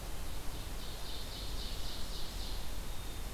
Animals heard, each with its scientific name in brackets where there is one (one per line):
Ovenbird (Seiurus aurocapilla)
Black-capped Chickadee (Poecile atricapillus)